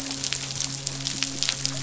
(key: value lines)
label: biophony, midshipman
recorder: SoundTrap 500